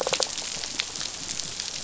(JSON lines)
{"label": "biophony", "recorder": "SoundTrap 500"}